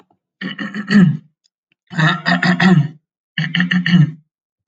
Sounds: Throat clearing